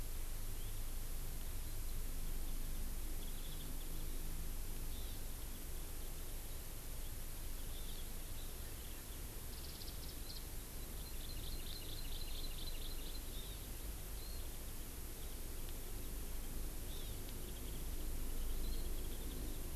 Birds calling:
Warbling White-eye (Zosterops japonicus), Hawaii Amakihi (Chlorodrepanis virens)

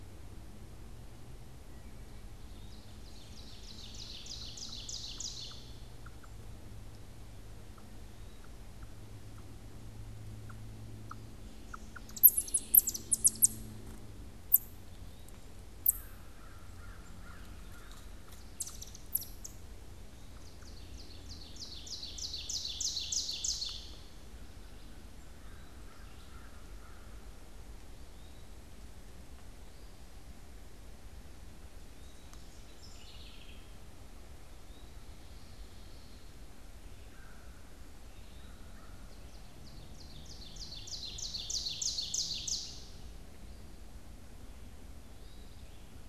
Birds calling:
American Crow (Corvus brachyrhynchos), House Wren (Troglodytes aedon), Ovenbird (Seiurus aurocapilla), Eastern Wood-Pewee (Contopus virens)

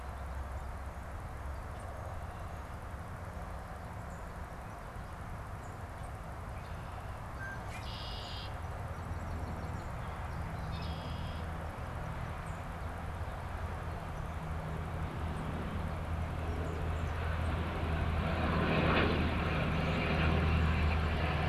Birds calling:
Red-winged Blackbird (Agelaius phoeniceus), Song Sparrow (Melospiza melodia)

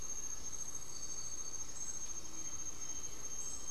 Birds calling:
Cinereous Tinamou (Crypturellus cinereus)

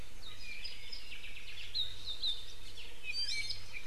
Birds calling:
Apapane (Himatione sanguinea), Iiwi (Drepanis coccinea)

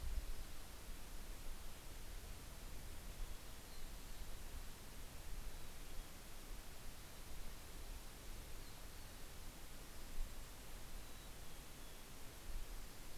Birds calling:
Yellow-rumped Warbler (Setophaga coronata), Mountain Chickadee (Poecile gambeli)

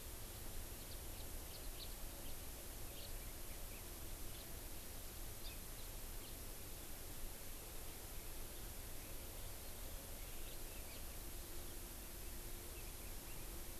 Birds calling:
Hawaii Amakihi (Chlorodrepanis virens), House Finch (Haemorhous mexicanus)

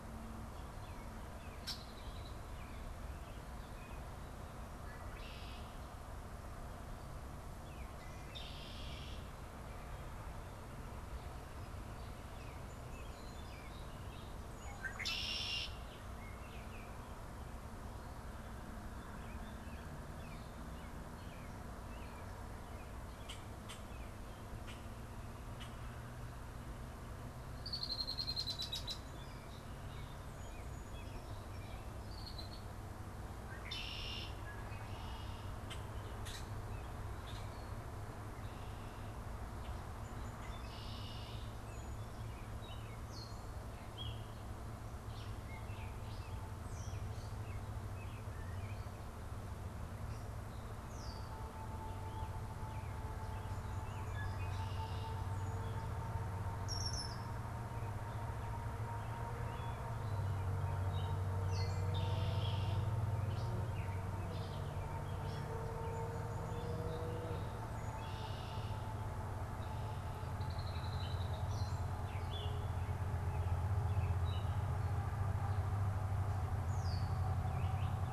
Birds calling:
Gray Catbird (Dumetella carolinensis), Song Sparrow (Melospiza melodia), Baltimore Oriole (Icterus galbula), Red-winged Blackbird (Agelaius phoeniceus)

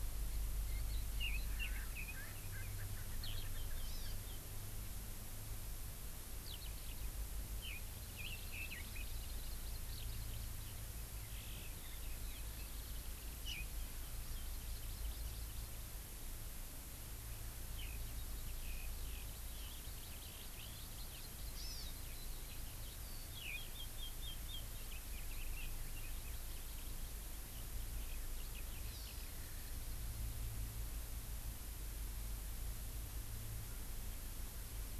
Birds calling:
Eurasian Skylark (Alauda arvensis), Erckel's Francolin (Pternistis erckelii), Hawaii Amakihi (Chlorodrepanis virens), Red-billed Leiothrix (Leiothrix lutea)

